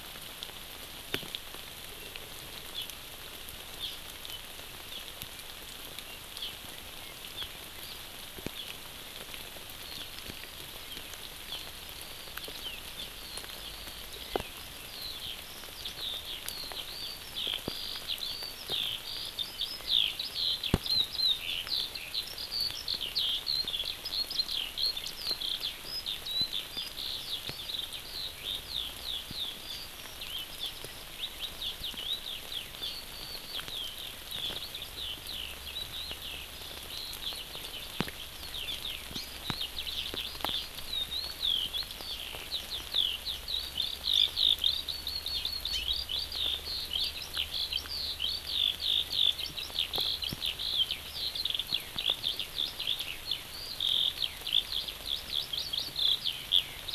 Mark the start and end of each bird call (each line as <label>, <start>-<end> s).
Hawaii Amakihi (Chlorodrepanis virens), 1.1-1.2 s
Hawaii Amakihi (Chlorodrepanis virens), 2.7-2.8 s
Hawaii Amakihi (Chlorodrepanis virens), 3.7-3.9 s
Hawaii Amakihi (Chlorodrepanis virens), 4.9-5.0 s
Hawaii Amakihi (Chlorodrepanis virens), 6.3-6.5 s
Hawaii Amakihi (Chlorodrepanis virens), 7.3-7.4 s
Hawaii Amakihi (Chlorodrepanis virens), 8.5-8.6 s
Hawaii Amakihi (Chlorodrepanis virens), 9.8-10.0 s
Eurasian Skylark (Alauda arvensis), 11.4-56.9 s